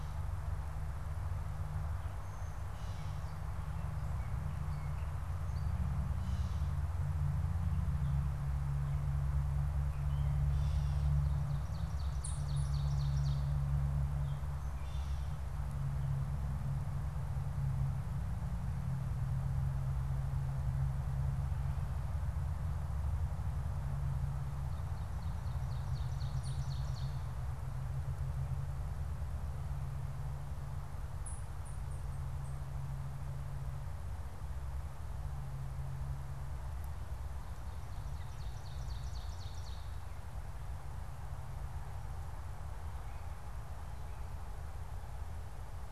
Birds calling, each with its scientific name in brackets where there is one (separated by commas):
Ovenbird (Seiurus aurocapilla), unidentified bird, Gray Catbird (Dumetella carolinensis)